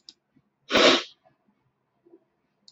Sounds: Sniff